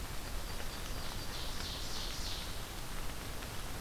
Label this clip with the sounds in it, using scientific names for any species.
Setophaga coronata, Seiurus aurocapilla